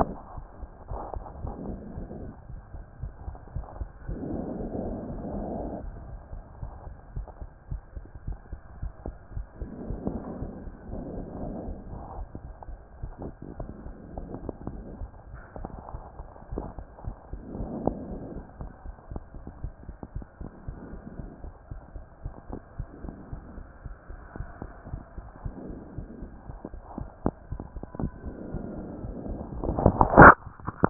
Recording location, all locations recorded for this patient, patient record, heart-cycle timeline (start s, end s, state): mitral valve (MV)
aortic valve (AV)+pulmonary valve (PV)+tricuspid valve (TV)+mitral valve (MV)
#Age: Child
#Sex: Female
#Height: 133.0 cm
#Weight: 34.6 kg
#Pregnancy status: False
#Murmur: Absent
#Murmur locations: nan
#Most audible location: nan
#Systolic murmur timing: nan
#Systolic murmur shape: nan
#Systolic murmur grading: nan
#Systolic murmur pitch: nan
#Systolic murmur quality: nan
#Diastolic murmur timing: nan
#Diastolic murmur shape: nan
#Diastolic murmur grading: nan
#Diastolic murmur pitch: nan
#Diastolic murmur quality: nan
#Outcome: Abnormal
#Campaign: 2014 screening campaign
0.00	5.99	unannotated
5.99	6.10	diastole
6.10	6.18	S1
6.18	6.32	systole
6.32	6.40	S2
6.40	6.62	diastole
6.62	6.71	S1
6.71	6.85	systole
6.85	6.92	S2
6.92	7.16	diastole
7.16	7.26	S1
7.26	7.40	systole
7.40	7.48	S2
7.48	7.70	diastole
7.70	7.82	S1
7.82	7.94	systole
7.94	8.04	S2
8.04	8.26	diastole
8.26	8.38	S1
8.38	8.50	systole
8.50	8.60	S2
8.60	8.80	diastole
8.80	8.92	S1
8.92	9.06	systole
9.06	9.14	S2
9.14	9.34	diastole
9.34	9.46	S1
9.46	9.60	systole
9.60	9.70	S2
9.70	9.88	diastole
9.88	30.90	unannotated